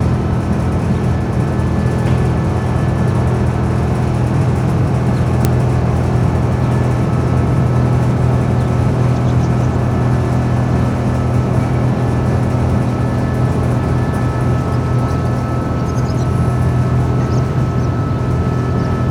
Is the machine making a constant noise?
yes